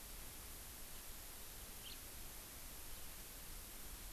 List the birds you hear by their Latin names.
Haemorhous mexicanus